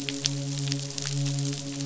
{"label": "biophony, midshipman", "recorder": "SoundTrap 500"}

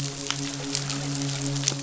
{"label": "biophony, midshipman", "recorder": "SoundTrap 500"}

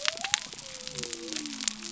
{"label": "biophony", "recorder": "SoundTrap 300"}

